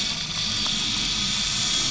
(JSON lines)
{"label": "anthrophony, boat engine", "recorder": "SoundTrap 500"}